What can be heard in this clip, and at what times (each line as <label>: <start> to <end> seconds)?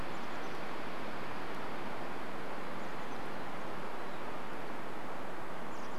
Chestnut-backed Chickadee call: 0 to 6 seconds
Mountain Chickadee call: 4 to 6 seconds